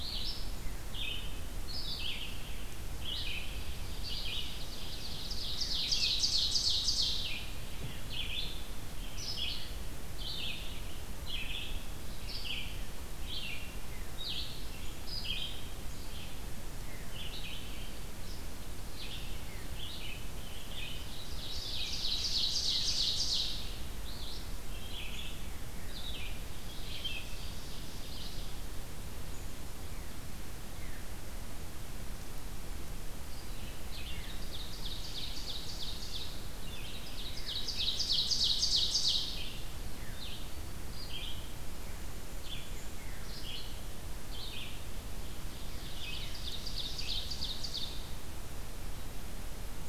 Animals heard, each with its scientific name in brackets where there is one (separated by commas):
Red-eyed Vireo (Vireo olivaceus), Ovenbird (Seiurus aurocapilla)